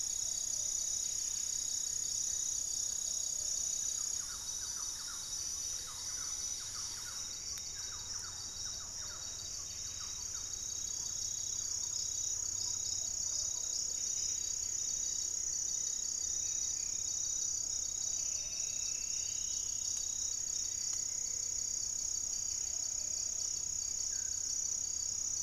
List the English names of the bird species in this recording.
Buff-breasted Wren, Plumbeous Pigeon, unidentified bird, Thrush-like Wren, Striped Woodcreeper, Goeldi's Antbird, Black-faced Antthrush